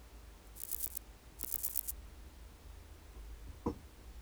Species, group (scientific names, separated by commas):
Chorthippus corsicus, Orthoptera